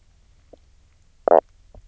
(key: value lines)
label: biophony, knock croak
recorder: SoundTrap 300